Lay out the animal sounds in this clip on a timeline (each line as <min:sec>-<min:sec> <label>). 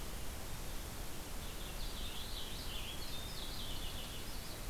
0:01.4-0:04.4 Purple Finch (Haemorhous purpureus)
0:04.1-0:04.7 Winter Wren (Troglodytes hiemalis)